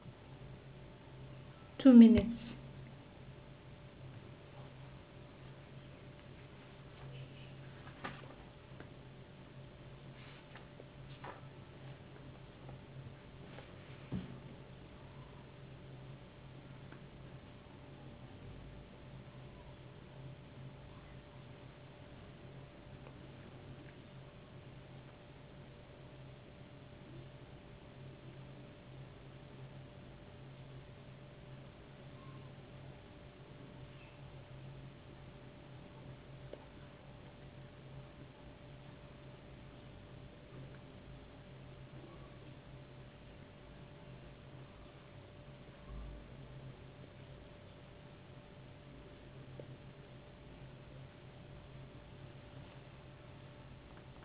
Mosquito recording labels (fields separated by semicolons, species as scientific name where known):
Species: no mosquito; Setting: insect culture